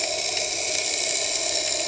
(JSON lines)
{"label": "anthrophony, boat engine", "recorder": "HydroMoth"}